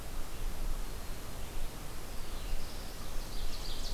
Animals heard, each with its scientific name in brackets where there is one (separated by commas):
Black-throated Blue Warbler (Setophaga caerulescens), Ovenbird (Seiurus aurocapilla)